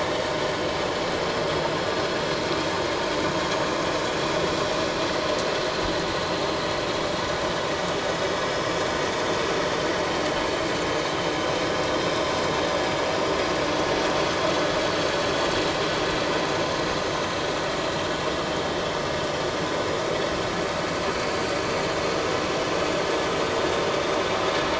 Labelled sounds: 21.0	21.3	vessel noise, 3.9 to 4.1 kHz

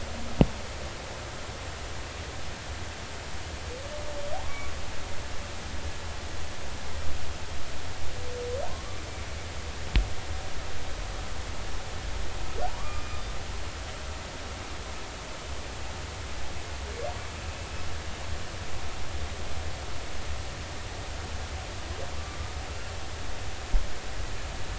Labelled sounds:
4.4	4.7	humpback whale, 0.99 to 1.2 kHz
8.7	9.0	humpback whale, 0.99 to 1.2 kHz
12.8	13.0	humpback whale, 1.1 to 1.2 kHz

